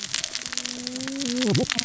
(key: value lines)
label: biophony, cascading saw
recorder: SoundTrap 600 or HydroMoth